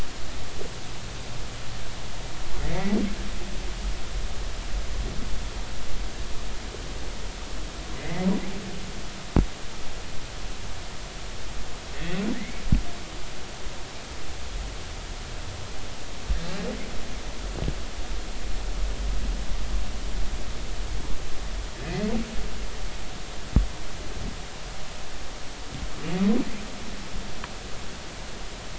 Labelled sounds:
2.7	3.0	humpback whale, 1.9 to 2.3 kHz
7.9	8.3	humpback whale, 1.8 to 2.1 kHz
11.9	12.6	humpback whale, 1.7 to 2.4 kHz
21.8	22.1	humpback whale, 1.9 to 2.1 kHz

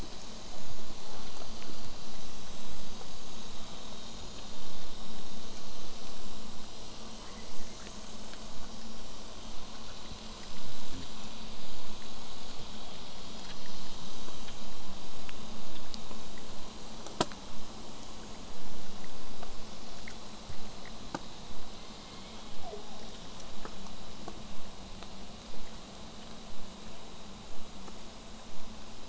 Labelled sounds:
7.2	7.8	killer whale, southern resident, J pod, 0.93 to 2.3 kHz
15.5	20.5	vessel noise, 0 to 8.0 kHz
21.8	23.1	killer whale, southern resident, J pod, call S01, 0.23 to 2.3 kHz

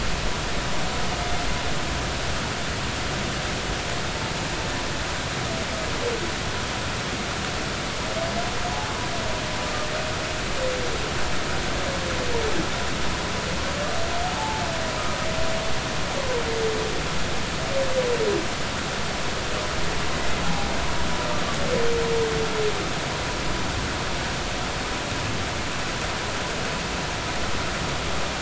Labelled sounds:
14.4	14.6	humpback whale, 0.80 to 0.93 kHz
20.4	20.7	humpback whale, 0.80 to 0.86 kHz

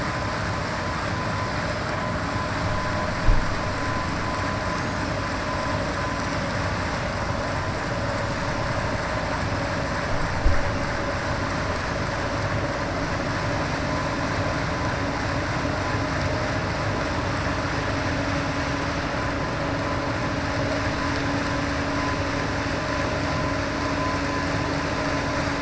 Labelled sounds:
4.6	5.0	killer whale, 5.6 to 6.7 kHz

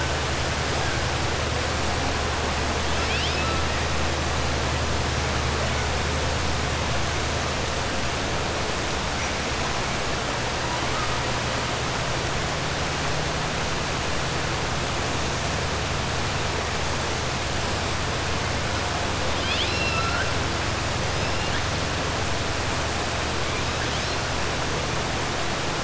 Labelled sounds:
2.9	3.6	killer whale, 1.3 to 5.6 kHz
19.3	20.3	killer whale, 1.3 to 5.5 kHz

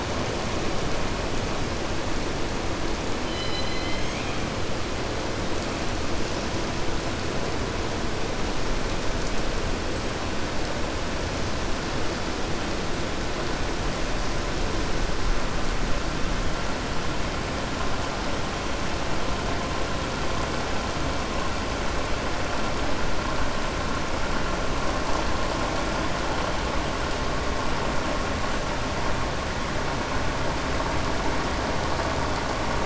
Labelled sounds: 3.2	4.4	killer whale, southern resident, 2.0 to 5.1 kHz

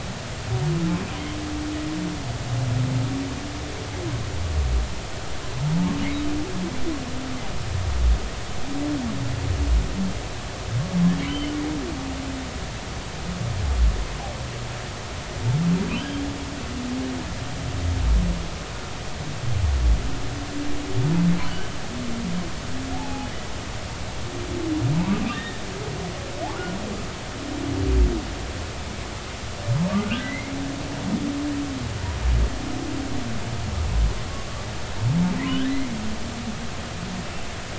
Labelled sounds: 11.3	11.5	humpback whale, 2.9 to 3.2 kHz
15.9	16.2	humpback whale, 2.9 to 3.3 kHz
21.5	21.7	humpback whale, 1.5 to 1.6 kHz
22.9	23.3	humpback whale, 0.80 to 0.93 kHz
25.3	25.6	humpback whale, 1.7 to 1.9 kHz
30.0	30.5	humpback whale, 1.4 to 2.2 kHz
35.6	36.0	humpback whale, 1.9 to 2.2 kHz

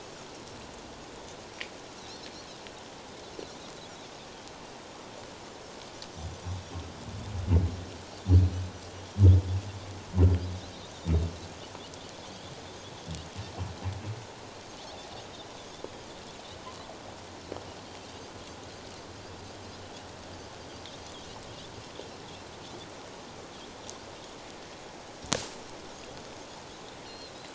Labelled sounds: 2.0	2.3	Pacific white-sided dolphin, 3.7 to 4.4 kHz
12.3	12.5	Pacific white-sided dolphin, 3.2 to 3.6 kHz
27.1	27.3	Pacific white-sided dolphin, 3.9 to 4.4 kHz

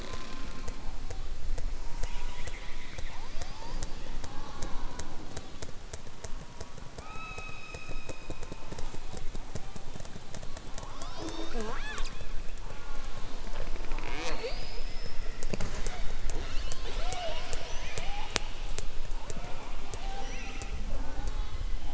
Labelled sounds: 16.4	18.4	killer whale, southern resident, 0.39 to 6.2 kHz

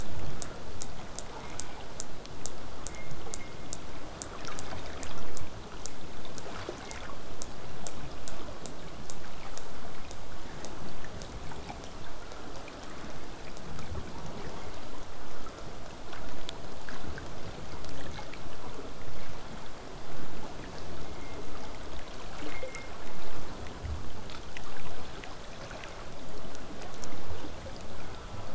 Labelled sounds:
1.4	1.8	killer whale, southern resident, J pod, call S04, 0.12 to 2.8 kHz
27.9	28.5	killer whale, southern resident, J pod, call S04, 0.40 to 1.9 kHz

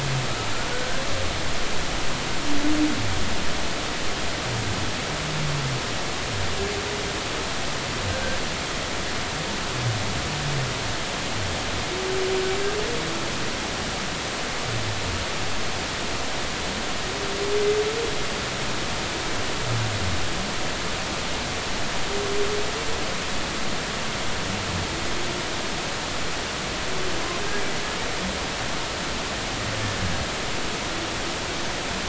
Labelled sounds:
0.7	1.0	humpback whale, 1.4 to 1.6 kHz

